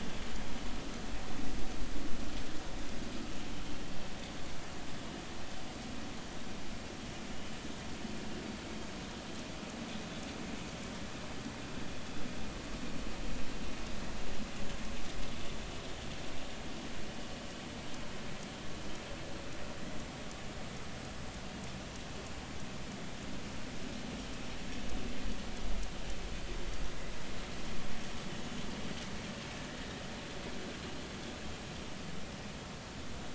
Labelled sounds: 16.4	16.6	vessel noise, 3.4 to 3.6 kHz

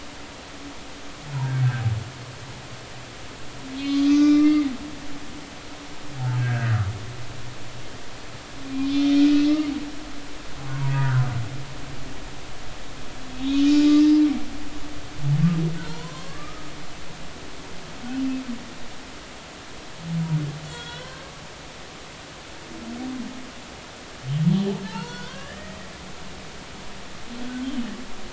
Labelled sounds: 3.8	4.7	humpback whale, 1.1 to 6.3 kHz
6.4	6.8	humpback whale, 1.4 to 1.8 kHz
9.4	9.7	humpback whale, 2.0 to 2.2 kHz
10.7	10.9	humpback whale, 0.90 to 1.1 kHz
13.8	14.1	humpback whale, 4.9 to 5.2 kHz
15.7	16.6	humpback whale, 0.86 to 4.5 kHz
20.7	21.3	humpback whale, 1.4 to 3.5 kHz
24.9	25.8	humpback whale, 0.83 to 4.5 kHz

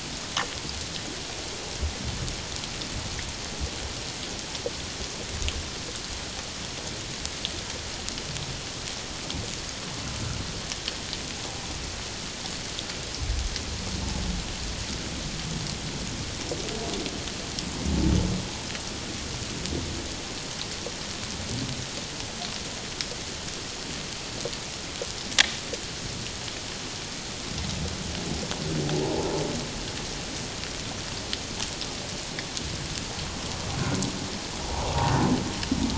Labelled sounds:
29.0	29.3	humpback whale, 0.78 to 1.0 kHz

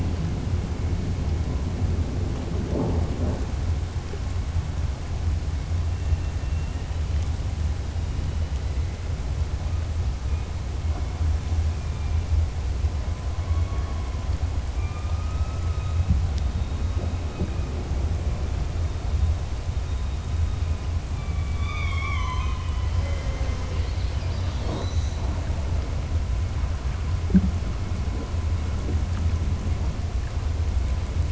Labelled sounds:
6.4	6.8	killer whale, southern resident, 1.8 to 2.9 kHz

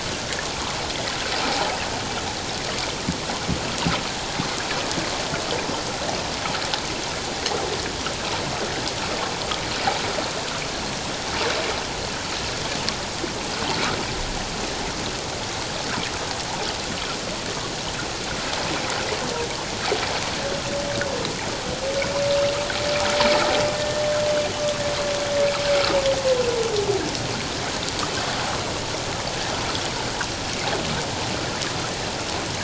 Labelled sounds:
23.8	24.0	humpback whale, 1.75 to 1.84 kHz

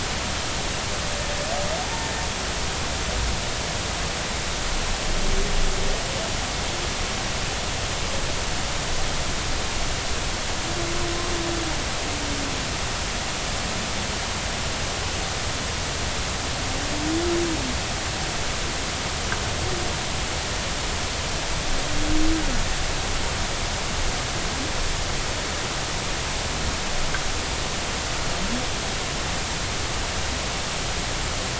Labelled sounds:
1.9	2.1	humpback whale, 0.80 to 0.96 kHz

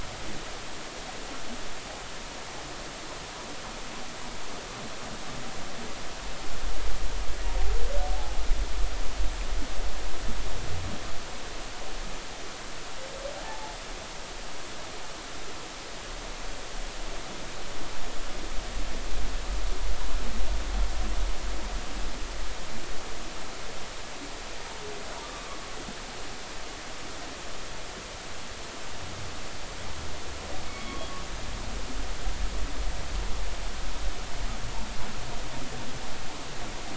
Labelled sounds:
8.1	8.4	humpback whale, 0.80 to 0.90 kHz
13.4	13.8	humpback whale, 0.80 to 0.93 kHz
25.2	25.5	humpback whale, 1.1 to 1.2 kHz
30.7	31.0	humpback whale, 2.1 to 2.3 kHz

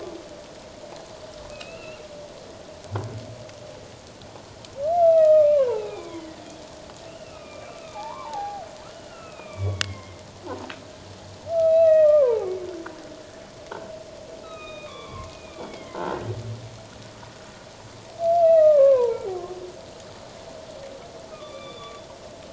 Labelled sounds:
1.5	2.0	humpback whale, 1.3 to 2.9 kHz
5.0	6.4	humpback whale, 0.78 to 3.4 kHz
7.1	10.2	humpback whale, 0.78 to 3.3 kHz
11.6	12.5	humpback whale, 0.78 to 4.0 kHz
14.4	16.2	humpback whale, 0.81 to 4.0 kHz
16.0	16.4	croaking sound likely from a nearby submerged object, 1.3 to 2.0 kHz
18.4	19.3	humpback whale, 0.84 to 2.8 kHz
21.3	22.0	humpback whale, 1.1 to 3.6 kHz

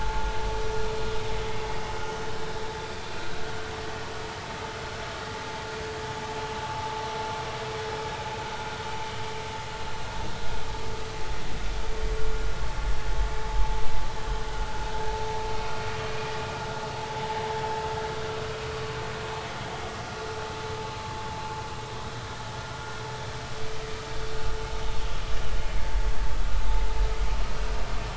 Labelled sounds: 25.0	25.2	vessel noise, 3.1 to 3.4 kHz

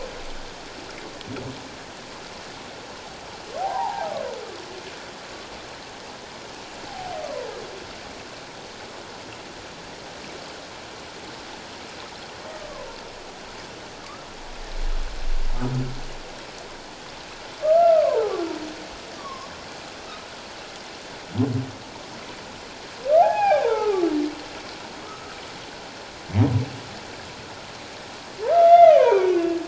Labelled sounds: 3.6	4.1	humpback whale, 0.78 to 1.1 kHz
6.9	7.1	humpback whale, 0.78 to 0.88 kHz
17.6	18.4	humpback whale, 0.78 to 1.4 kHz
19.2	19.5	humpback whale, 0.97 to 1.2 kHz
23.2	24.1	humpback whale, 0.78 to 2.6 kHz
25.0	25.4	humpback whale, 1.2 to 1.3 kHz
28.6	29.6	humpback whale, 0.88 to 3.6 kHz

